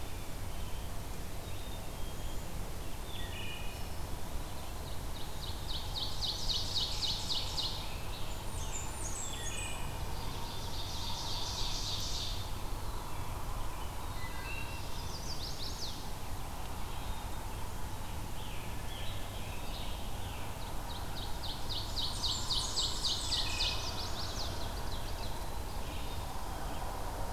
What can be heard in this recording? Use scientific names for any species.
Poecile atricapillus, Hylocichla mustelina, Contopus virens, Seiurus aurocapilla, Piranga olivacea, Setophaga fusca, Setophaga pensylvanica